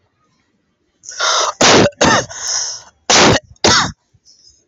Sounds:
Cough